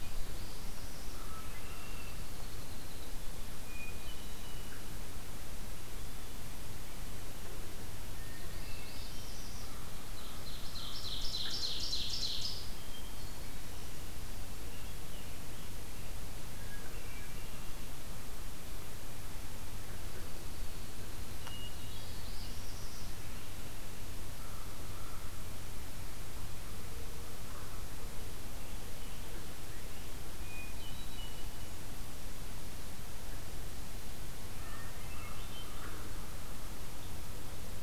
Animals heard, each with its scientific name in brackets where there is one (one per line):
Downy Woodpecker (Dryobates pubescens)
American Crow (Corvus brachyrhynchos)
Scarlet Tanager (Piranga olivacea)
Hermit Thrush (Catharus guttatus)
Ovenbird (Seiurus aurocapilla)
Northern Parula (Setophaga americana)